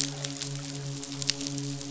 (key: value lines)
label: biophony, midshipman
recorder: SoundTrap 500